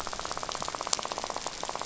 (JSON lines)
{"label": "biophony, rattle", "recorder": "SoundTrap 500"}